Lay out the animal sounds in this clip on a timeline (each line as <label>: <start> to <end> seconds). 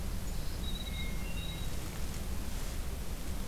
Red-eyed Vireo (Vireo olivaceus): 0.0 to 3.5 seconds
Hermit Thrush (Catharus guttatus): 0.5 to 1.9 seconds